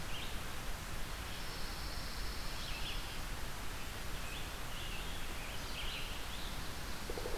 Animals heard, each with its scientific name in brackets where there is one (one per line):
Red-eyed Vireo (Vireo olivaceus)
Pine Warbler (Setophaga pinus)
Scarlet Tanager (Piranga olivacea)